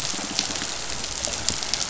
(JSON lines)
{"label": "biophony, pulse", "recorder": "SoundTrap 500"}